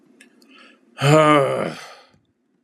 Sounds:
Sigh